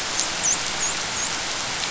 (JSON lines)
{"label": "biophony, dolphin", "recorder": "SoundTrap 500"}